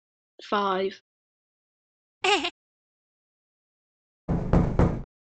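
At the start, someone says "five." Then about 2 seconds in, someone chuckles. Finally, about 4 seconds in, there is knocking.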